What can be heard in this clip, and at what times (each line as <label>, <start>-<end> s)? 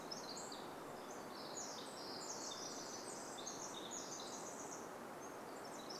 Pacific Wren song, 0-6 s